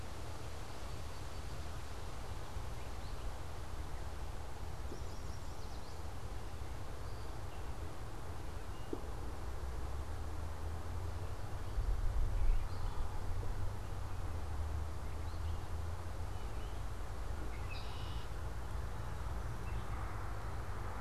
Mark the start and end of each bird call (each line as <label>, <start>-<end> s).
Yellow Warbler (Setophaga petechia), 4.6-6.2 s
Red-winged Blackbird (Agelaius phoeniceus), 17.3-18.3 s